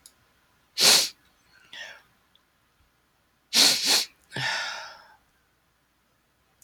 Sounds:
Sniff